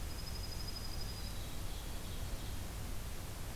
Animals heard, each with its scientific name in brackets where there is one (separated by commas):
Dark-eyed Junco (Junco hyemalis), Ovenbird (Seiurus aurocapilla), Black-capped Chickadee (Poecile atricapillus)